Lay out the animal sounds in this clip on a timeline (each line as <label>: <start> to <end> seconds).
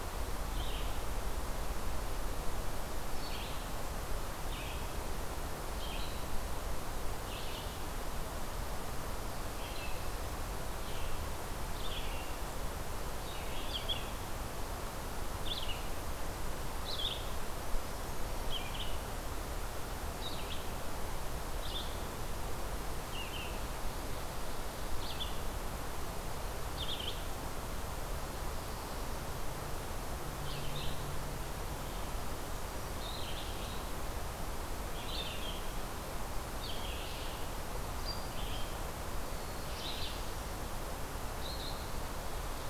Red-eyed Vireo (Vireo olivaceus): 0.0 to 42.7 seconds
Black-throated Blue Warbler (Setophaga caerulescens): 39.1 to 40.4 seconds